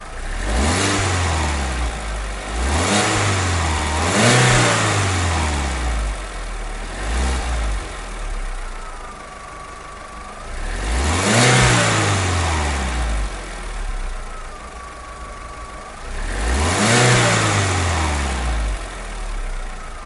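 A car engine revs indoors with increasing intensity, accompanied by a brief exhaust burble and a squeaking belt at the end. 0.0 - 20.1
A car engine revs with increasing intensity, accompanied by a brief exhaust burble and a squeaking belt. 0.0 - 20.1
A car engine starts with ignition sounds, then revs, followed by a brief exhaust burble and a subtle squeaking belt. 0.0 - 20.1

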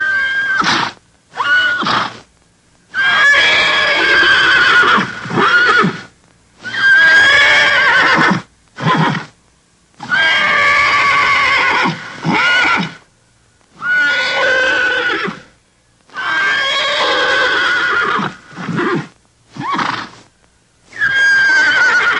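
A horse neighs repeatedly with strong, sharp calls. 0.0 - 2.3
A horse neighs repeatedly with strong, sharp calls. 2.9 - 9.3
A horse neighs repeatedly with strong, sharp calls. 9.9 - 13.1
A horse neighs repeatedly with strong, sharp calls. 13.8 - 15.5
A horse neighs repeatedly with strong, sharp calls. 16.1 - 20.1
A horse neighs repeatedly with strong, sharp calls. 20.9 - 22.2

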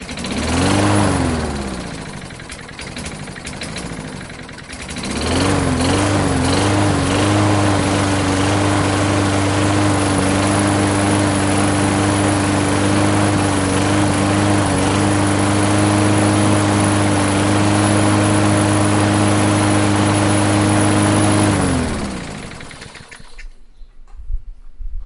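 A loud mechanical engine sound. 0.0 - 2.1
An engine motor running quietly. 2.2 - 4.5
A loud mechanical engine sound. 4.6 - 22.8
An engine motor running quietly. 23.0 - 25.0

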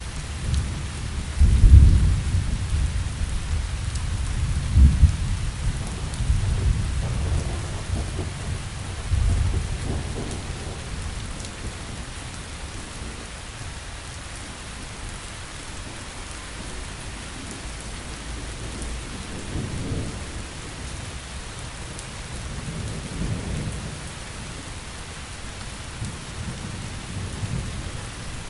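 Heavy rain splashes continuously onto the ground. 0.0 - 28.5
Thunder rolling in the distance. 1.4 - 2.8
Thunder rolling in the distance. 4.7 - 5.2
Thunder rolls in the far distance. 6.4 - 11.4
A short roll of thunder in the distance. 19.6 - 20.4
Thunder rolls softly in the distance. 22.9 - 23.8

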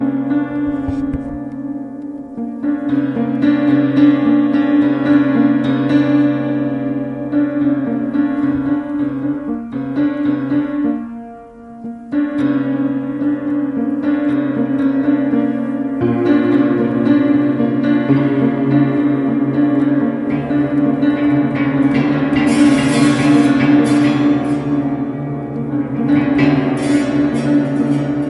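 Someone is playing the piano poorly. 0.0 - 28.2

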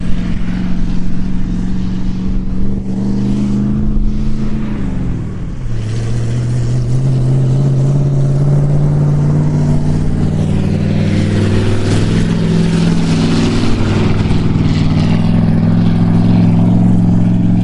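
An engine with high horsepower roars loudly as it approaches, shifts gear once, and drives by. 0.0 - 17.6

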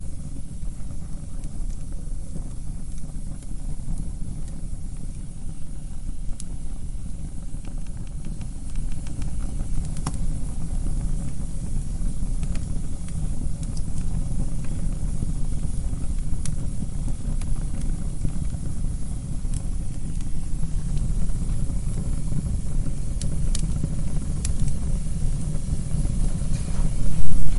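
The sound of fire burning constantly. 0.1 - 27.6
Crackling fire sounds. 8.3 - 10.4
Crackling fire sounds. 12.3 - 13.5
Crackling fire sounds. 22.9 - 24.5

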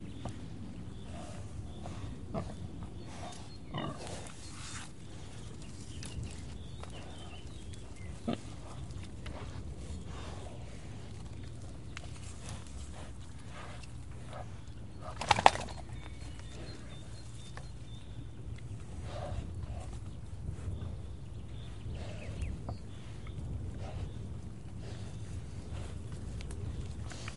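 Birds chirp intermittently outdoors. 0.0 - 27.4
A pig breathes intermittently, barely audible. 1.1 - 2.1
A pig grunts faintly. 2.3 - 2.5
A pig breathes intermittently, barely audible. 3.1 - 3.5
A pig grunts faintly. 3.7 - 4.0
A pig grunts faintly. 8.2 - 8.4
Clattering sounds. 15.2 - 15.7
A pig breathes intermittently, barely audible. 19.1 - 20.0
A pig breathing quietly. 22.0 - 22.6

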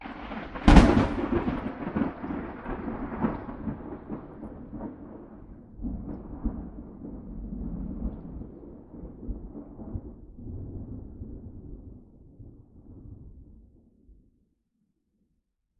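Thunder sounds in the distance. 0.0 - 4.4
A short, strong thunderclap in the distance. 0.6 - 1.1
Thunder rumbles in the distance with an echoing, muffled sound. 5.8 - 8.5
Thunder rumbles in the distance with an echoing, muffled sound. 9.8 - 11.4

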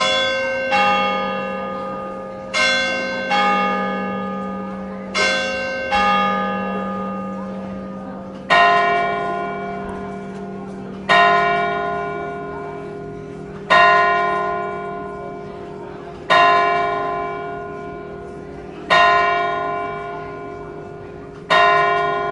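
People are speaking in the distance outside. 0.1 - 22.3
Glock sounds fading with an echo. 1.5 - 2.5
A church bell rings with a metallic ding. 2.5 - 3.3
A church bell rings with a metallic 'dong' sound. 3.3 - 4.0
A church bell echoes and fades. 4.1 - 5.1
Church bells ringing with a ding-dong sound. 5.2 - 7.1
A church bell echoes and fades. 7.2 - 8.5
The church bell rings melodically and gradually decreases. 8.6 - 10.9
A church bell tolls with a metallic tone, gradually decreasing in volume. 11.1 - 16.1
The church bell rings melodically and gradually decreases. 16.4 - 18.7
A church bell tolls with a metallic tone, gradually decreasing in volume. 19.0 - 21.3
A church bell ringing. 21.5 - 22.2

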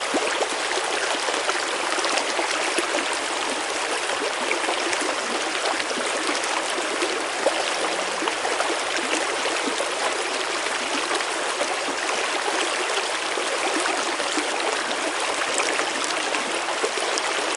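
The consistent sound of flowing water. 0.0 - 17.6

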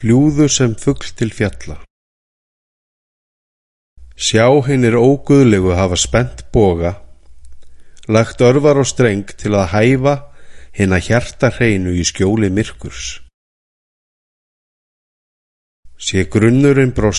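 A man is speaking in a low to mid-range voice. 0.0 - 1.9
A man with a low to mid-range voice reads aloud with intermittent pauses. 4.0 - 13.4
A man is speaking in a low to mid-range voice. 15.8 - 17.2

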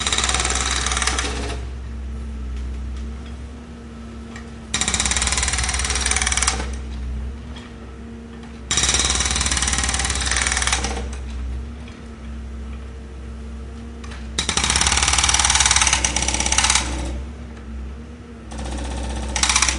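A jackhammer produces a loud, repeated pounding sound. 0.0 - 1.7
An engine thrums steadily and revs up rhythmically. 0.0 - 19.8
A quiet jingle is heard in the distance. 3.2 - 3.4
A quiet jingle is heard in the distance. 4.3 - 4.5
A jackhammer produces a loud, repeated pounding sound. 4.7 - 6.7
A jackhammer produces a loud, repeated pounding sound. 8.7 - 11.1
A jackhammer produces a loud, repeated pounding sound. 14.3 - 17.2
A jackhammer produces a loud, repeated pounding sound of varying intensity. 18.5 - 19.8

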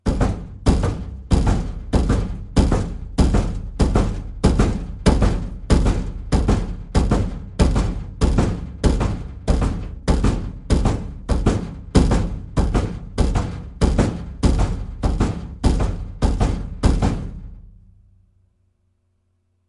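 A washing machine produces a rhythmic hitting sound. 0.0 - 17.7

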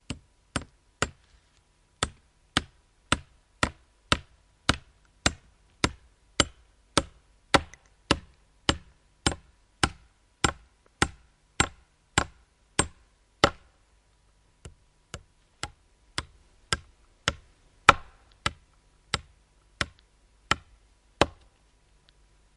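A hammer clanging a nail repeatedly. 0.0 - 14.2
A hammer striking a nail repeatedly. 14.7 - 21.3

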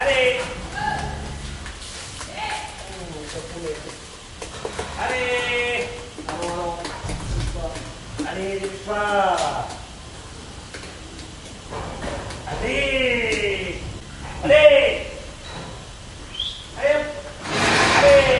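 A man is shouting outdoors. 0.0 - 0.7
A voice shouting outdoors in the background. 0.7 - 1.1
A voice shouting outdoors in the background. 2.2 - 2.9
An indistinct phrase spoken by a man in a calm tone. 2.9 - 4.1
A man is shouting outdoors. 4.9 - 6.1
A cow moos quietly outdoors. 6.3 - 7.0
A man is shouting outdoors. 8.2 - 9.9
A man is shouting outdoors. 12.4 - 15.1
Short whistling outdoors. 15.5 - 15.8
A man is shouting outdoors. 16.8 - 18.4
A harsh and loud metallic rumble. 17.5 - 18.4

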